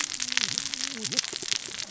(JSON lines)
{"label": "biophony, cascading saw", "recorder": "SoundTrap 600 or HydroMoth"}